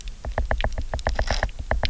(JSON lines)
{"label": "biophony, knock", "recorder": "SoundTrap 300"}